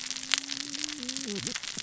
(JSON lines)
{"label": "biophony, cascading saw", "recorder": "SoundTrap 600 or HydroMoth"}